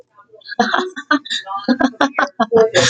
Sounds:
Laughter